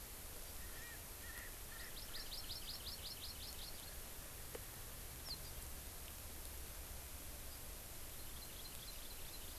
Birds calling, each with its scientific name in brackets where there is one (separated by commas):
Hawaii Amakihi (Chlorodrepanis virens), Erckel's Francolin (Pternistis erckelii)